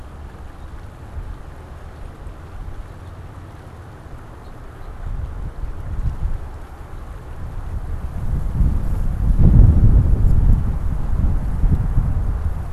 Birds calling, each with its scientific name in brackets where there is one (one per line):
House Finch (Haemorhous mexicanus)